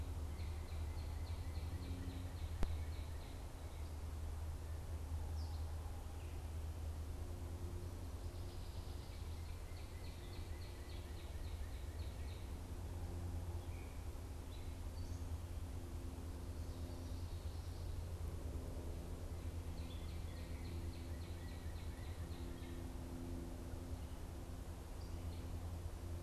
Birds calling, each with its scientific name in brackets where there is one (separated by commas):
Gray Catbird (Dumetella carolinensis), Northern Cardinal (Cardinalis cardinalis)